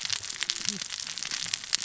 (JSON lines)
{"label": "biophony, cascading saw", "recorder": "SoundTrap 600 or HydroMoth"}